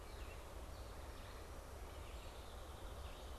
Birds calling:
American Goldfinch (Spinus tristis)
Red-eyed Vireo (Vireo olivaceus)

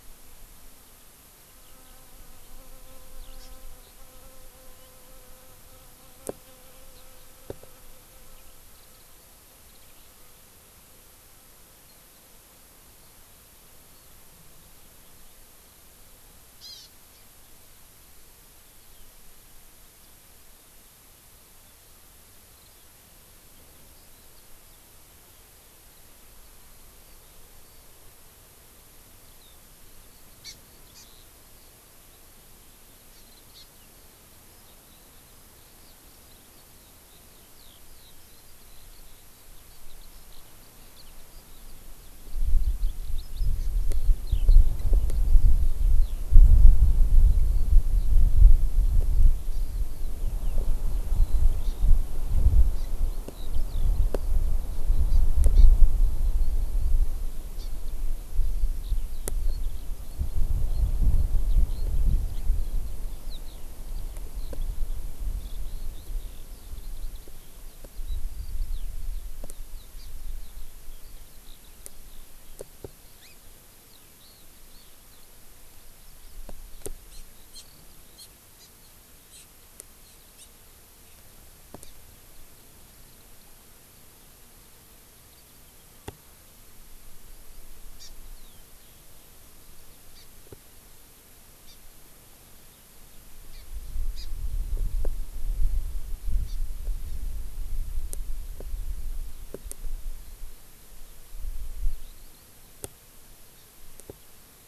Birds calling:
Warbling White-eye (Zosterops japonicus)
Hawaii Amakihi (Chlorodrepanis virens)
Eurasian Skylark (Alauda arvensis)

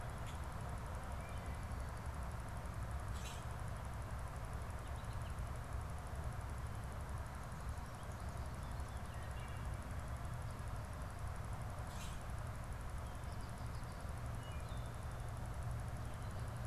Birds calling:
Common Grackle (Quiscalus quiscula)

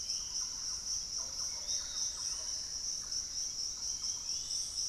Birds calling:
Bluish-fronted Jacamar (Galbula cyanescens)
Piratic Flycatcher (Legatus leucophaius)
Thrush-like Wren (Campylorhynchus turdinus)

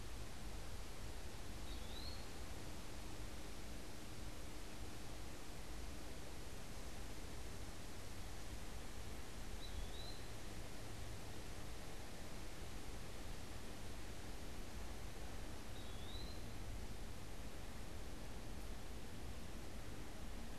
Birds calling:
Eastern Wood-Pewee (Contopus virens)

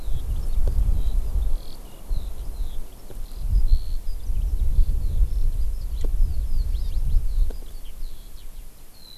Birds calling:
Eurasian Skylark (Alauda arvensis)

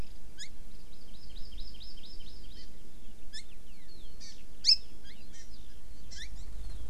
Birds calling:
Hawaii Amakihi (Chlorodrepanis virens)
Eurasian Skylark (Alauda arvensis)

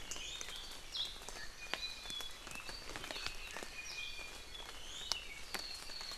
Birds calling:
Iiwi (Drepanis coccinea)

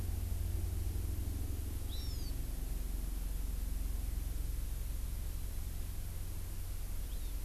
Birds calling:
Hawaii Amakihi (Chlorodrepanis virens)

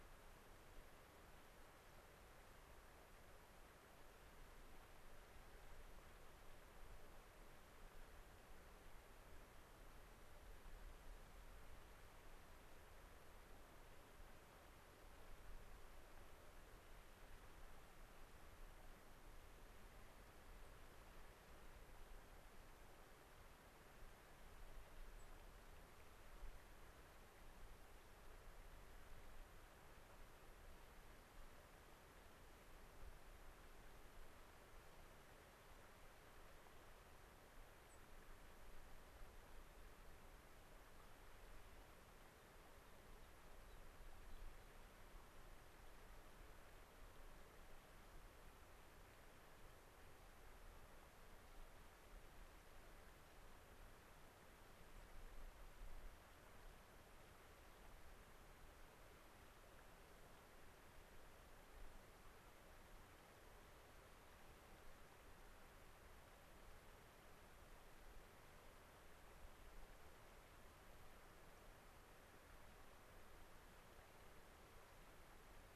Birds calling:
White-crowned Sparrow (Zonotrichia leucophrys)
American Pipit (Anthus rubescens)

